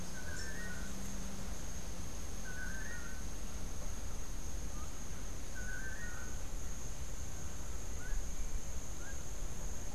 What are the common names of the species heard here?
Long-tailed Manakin, Rufous-capped Warbler, unidentified bird